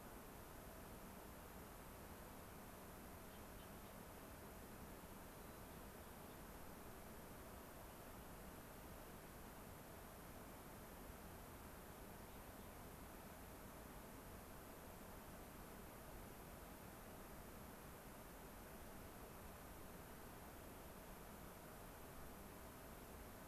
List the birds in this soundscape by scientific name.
Zonotrichia leucophrys